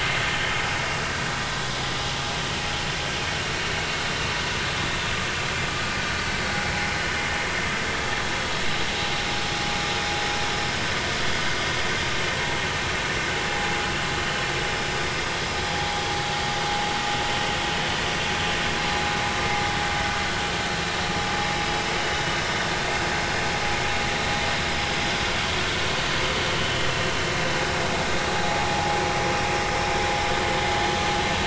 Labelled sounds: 19.4	19.8	vessel noise, 2.0 to 2.2 kHz
28.3	29.0	vessel noise, 0.80 to 0.93 kHz

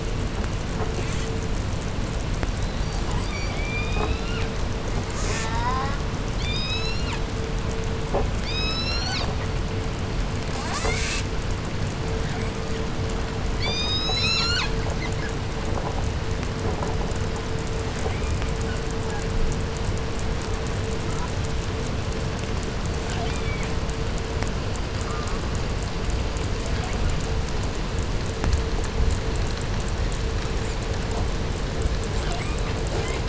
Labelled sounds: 0.9	1.4	killer whale, southern resident, 0.80 to 8.0 kHz
2.6	4.7	killer whale, southern resident, 0.40 to 8.0 kHz
5.0	5.6	killer whale, southern resident, 0.61 to 8.0 kHz
5.1	6.2	killer whale, 0.46 to 2.5 kHz
6.2	7.3	killer whale, southern resident, 0.52 to 8.0 kHz
8.2	9.5	killer whale, southern resident, 0.48 to 8.0 kHz
10.4	11.3	killer whale, 0.23 to 8.0 kHz
12.0	13.0	killer whale, southern resident, 0.65 to 8.0 kHz
13.4	15.0	killer whale, southern resident, 0.67 to 8.0 kHz
18.0	18.7	killer whale, southern resident, 0.90 to 8.0 kHz
21.0	21.4	killer whale, southern resident, 0.65 to 1.8 kHz
23.0	23.8	killer whale, southern resident, J pod, call S44, 0.48 to 8.0 kHz
24.9	25.5	killer whale, southern resident, 0.59 to 1.9 kHz
26.5	27.5	killer whale, 0.50 to 8.0 kHz
32.0	33.2	killer whale, southern resident, 0.40 to 8.0 kHz

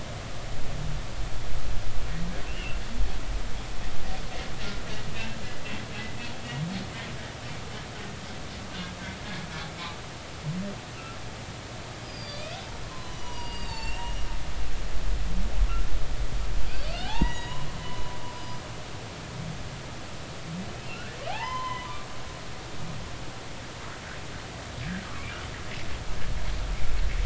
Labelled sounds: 2.5	2.8	humpback whale, 2.5 to 2.9 kHz
12.0	14.2	humpback whale, 0.90 to 7.4 kHz
15.7	15.9	humpback whale, 1.3 to 1.5 kHz
16.9	18.6	humpback whale, 0.80 to 7.1 kHz
20.9	22.0	humpback whale, 0.80 to 3.1 kHz
25.0	25.3	humpback whale, 1.0 to 1.4 kHz

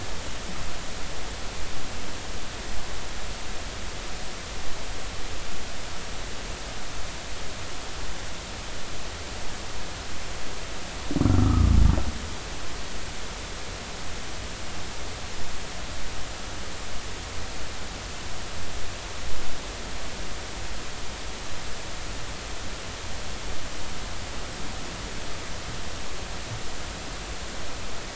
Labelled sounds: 11.3	11.8	humpback whale, 1.1 to 1.4 kHz

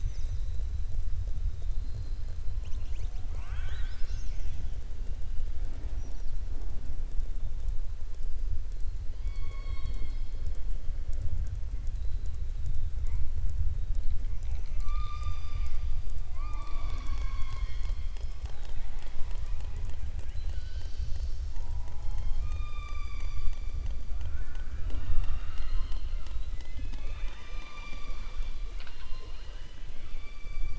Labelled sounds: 28.6	29.8	killer whale, southern resident, 0.44 to 4.7 kHz

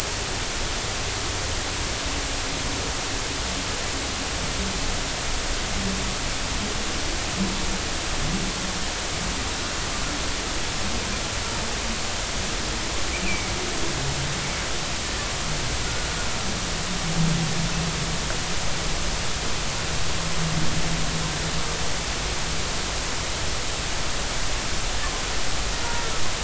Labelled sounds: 13.2	13.5	humpback whale, 2.2 to 2.8 kHz

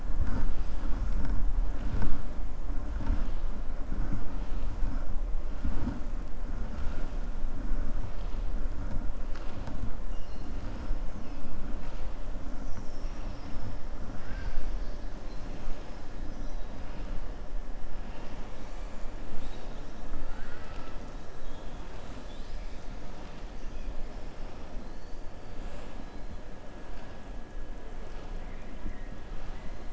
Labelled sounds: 12.5	13.7	killer whale, southern resident, 4.7 to 7.4 kHz
14.1	15.0	killer whale, southern resident, 0.95 to 6.0 kHz
20.1	21.0	killer whale, southern resident, 0.89 to 5.3 kHz

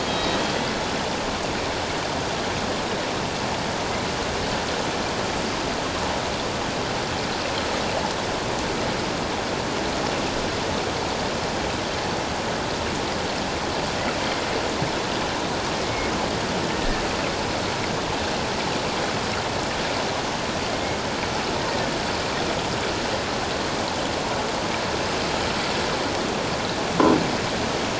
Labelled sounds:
0.1	0.4	killer whale, Bigg's (transient), 3.8 to 3.9 kHz
15.8	17.0	killer whale, Bigg's (transient), 1.6 to 2.2 kHz

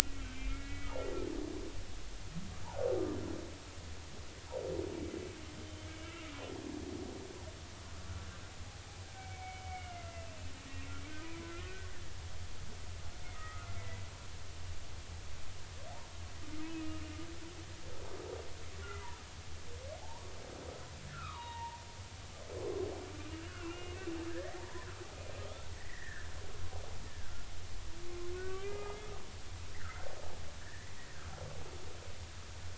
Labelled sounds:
0.2	1.1	humpback whale, 1.9 to 3.3 kHz
6.0	6.4	humpback whale, 1.2 to 1.4 kHz
9.2	10.5	humpback whale, 1.4 to 2.8 kHz
11.5	11.9	humpback whale, 1.3 to 2.0 kHz
13.3	14.0	humpback whale, 1.2 to 2.0 kHz
16.6	16.9	humpback whale, 2.5 to 2.7 kHz
20.0	21.8	humpback whale, 0.80 to 3.8 kHz
23.4	24.0	humpback whale, 1.3 to 2.9 kHz
24.3	24.9	humpback whale, 0.83 to 2.1 kHz
25.8	27.3	humpback whale, 1.4 to 2.1 kHz
28.5	29.1	humpback whale, 1.2 to 2.5 kHz
29.7	30.9	humpback whale, 1.2 to 2.1 kHz

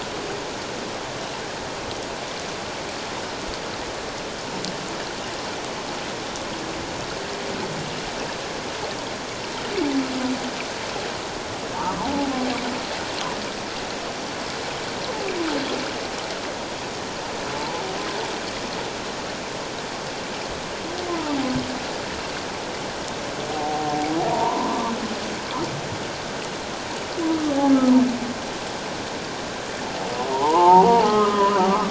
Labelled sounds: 11.8	12.3	humpback whale, 0.78 to 1.4 kHz
17.6	17.8	humpback whale, 0.84 to 1.1 kHz
21.1	21.4	humpback whale, 0.84 to 1.1 kHz
23.5	24.8	humpback whale, 0.78 to 1.1 kHz
27.3	27.6	humpback whale, 1.1 to 1.3 kHz
30.3	31.8	humpback whale, 0.78 to 1.3 kHz

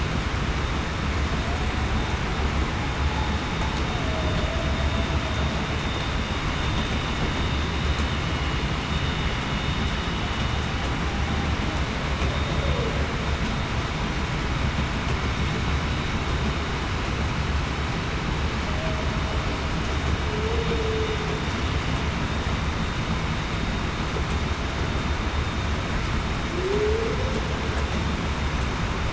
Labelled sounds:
3.9	4.6	humpback whale, 0.58 to 0.73 kHz
20.2	20.8	humpback whale, 0.42 to 0.49 kHz
26.5	27.2	humpback whale, 0.33 to 0.52 kHz

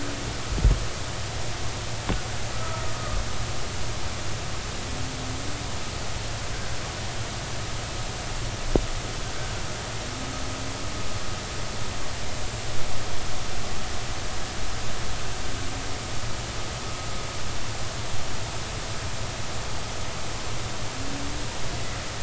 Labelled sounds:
2.5	3.2	killer whale, Bigg's (transient), 1.2 to 1.4 kHz

